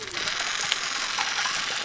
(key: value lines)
label: biophony
recorder: SoundTrap 300